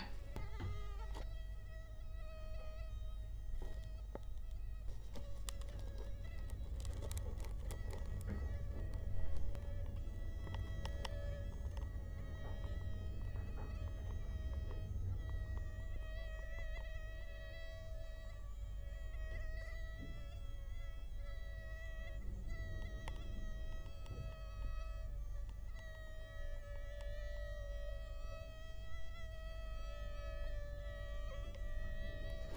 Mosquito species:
Culex quinquefasciatus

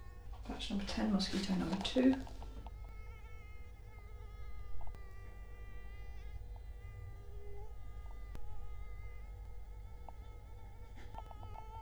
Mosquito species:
Culex quinquefasciatus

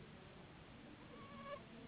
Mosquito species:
Anopheles gambiae s.s.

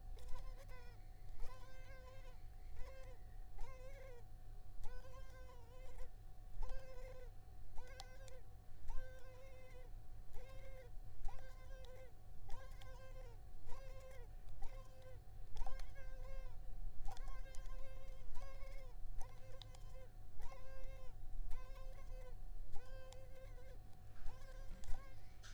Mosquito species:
Culex pipiens complex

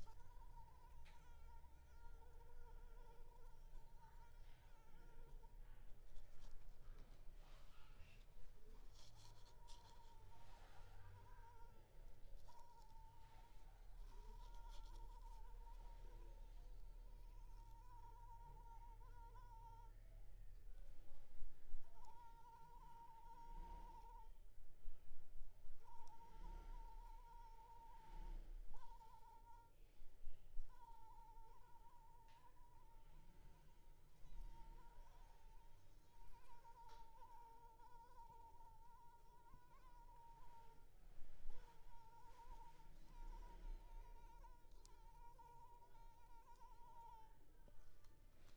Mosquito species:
Anopheles arabiensis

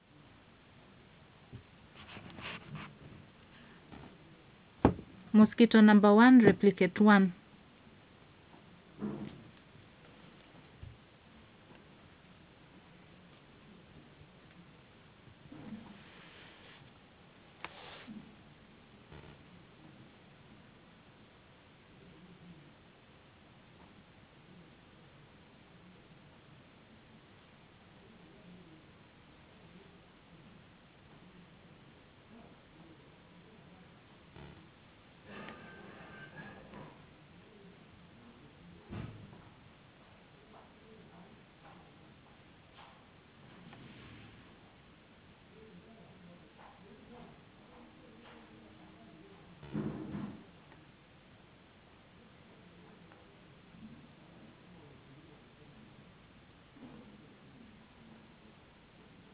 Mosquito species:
no mosquito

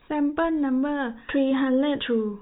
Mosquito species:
no mosquito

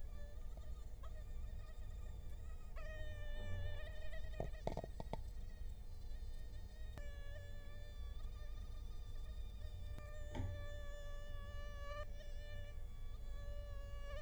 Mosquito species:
Culex quinquefasciatus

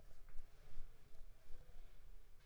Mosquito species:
Anopheles squamosus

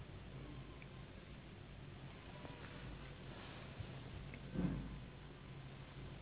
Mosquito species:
Anopheles gambiae s.s.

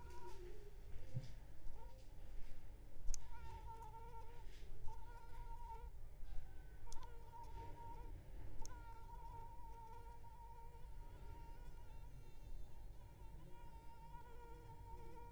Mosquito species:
Anopheles arabiensis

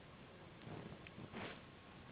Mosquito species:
Anopheles gambiae s.s.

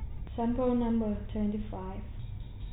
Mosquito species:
no mosquito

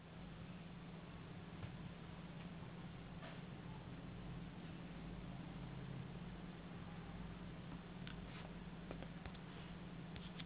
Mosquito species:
no mosquito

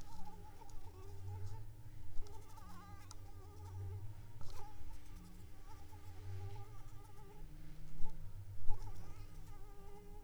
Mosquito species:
Anopheles arabiensis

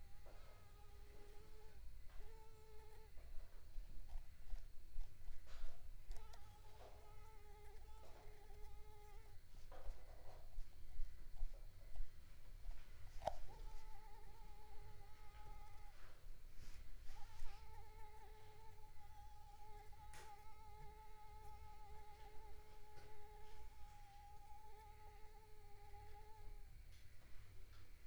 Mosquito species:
Mansonia uniformis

